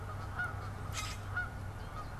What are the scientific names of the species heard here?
Spinus tristis, Branta canadensis, Quiscalus quiscula